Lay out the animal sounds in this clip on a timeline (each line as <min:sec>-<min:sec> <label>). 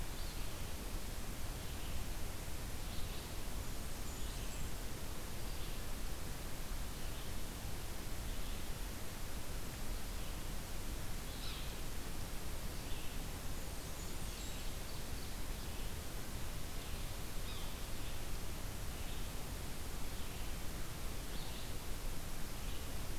0:00.0-0:23.2 Red-eyed Vireo (Vireo olivaceus)
0:03.3-0:04.7 Blackburnian Warbler (Setophaga fusca)
0:11.3-0:11.6 Yellow-bellied Sapsucker (Sphyrapicus varius)
0:13.3-0:14.8 Blackburnian Warbler (Setophaga fusca)
0:13.8-0:15.8 Ovenbird (Seiurus aurocapilla)
0:17.4-0:17.6 Yellow-bellied Sapsucker (Sphyrapicus varius)